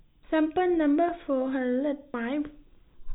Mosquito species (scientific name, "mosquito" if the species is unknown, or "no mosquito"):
no mosquito